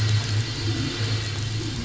{"label": "anthrophony, boat engine", "recorder": "SoundTrap 500"}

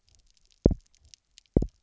{"label": "biophony, double pulse", "recorder": "SoundTrap 300"}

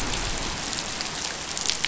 {"label": "anthrophony, boat engine", "recorder": "SoundTrap 500"}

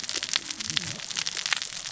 {"label": "biophony, cascading saw", "recorder": "SoundTrap 600 or HydroMoth"}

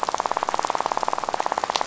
{"label": "biophony, rattle", "recorder": "SoundTrap 500"}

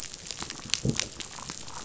{"label": "biophony", "recorder": "SoundTrap 500"}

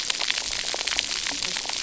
{"label": "biophony, cascading saw", "recorder": "SoundTrap 300"}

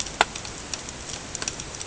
{"label": "ambient", "recorder": "HydroMoth"}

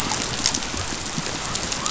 {"label": "biophony", "recorder": "SoundTrap 500"}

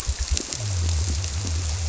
{"label": "biophony", "recorder": "SoundTrap 300"}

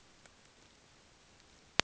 {"label": "ambient", "recorder": "HydroMoth"}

